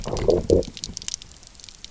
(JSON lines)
{"label": "biophony, low growl", "recorder": "SoundTrap 300"}